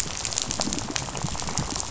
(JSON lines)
{"label": "biophony, rattle", "recorder": "SoundTrap 500"}